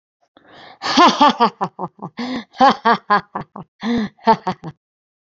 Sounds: Laughter